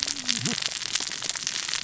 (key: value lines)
label: biophony, cascading saw
recorder: SoundTrap 600 or HydroMoth